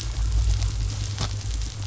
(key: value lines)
label: anthrophony, boat engine
recorder: SoundTrap 500